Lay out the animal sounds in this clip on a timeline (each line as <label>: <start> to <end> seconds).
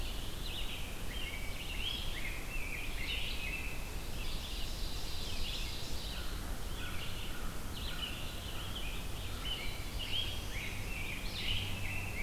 Red-eyed Vireo (Vireo olivaceus): 0.0 to 12.2 seconds
Rose-breasted Grosbeak (Pheucticus ludovicianus): 0.9 to 4.4 seconds
Ovenbird (Seiurus aurocapilla): 4.0 to 6.4 seconds
American Crow (Corvus brachyrhynchos): 6.1 to 9.1 seconds
Rose-breasted Grosbeak (Pheucticus ludovicianus): 9.0 to 12.2 seconds
Black-throated Blue Warbler (Setophaga caerulescens): 9.4 to 10.8 seconds